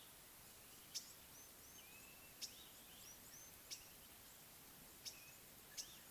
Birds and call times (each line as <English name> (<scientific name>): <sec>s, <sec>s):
Green-winged Pytilia (Pytilia melba): 1.0s, 2.4s, 3.7s, 5.1s
Blue-naped Mousebird (Urocolius macrourus): 2.0s
African Gray Flycatcher (Bradornis microrhynchus): 3.4s